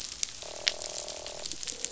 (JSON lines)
{"label": "biophony, croak", "recorder": "SoundTrap 500"}